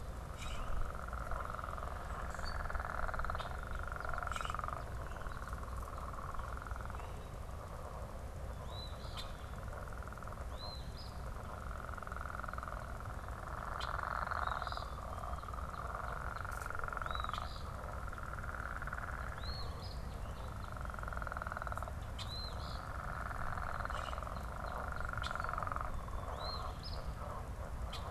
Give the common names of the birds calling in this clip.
Common Grackle, Eastern Phoebe, unidentified bird